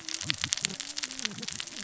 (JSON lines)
{"label": "biophony, cascading saw", "recorder": "SoundTrap 600 or HydroMoth"}